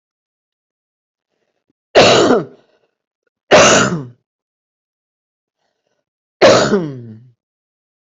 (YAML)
expert_labels:
- quality: good
  cough_type: wet
  dyspnea: false
  wheezing: false
  stridor: false
  choking: false
  congestion: false
  nothing: true
  diagnosis: lower respiratory tract infection
  severity: mild
age: 50
gender: female
respiratory_condition: false
fever_muscle_pain: false
status: symptomatic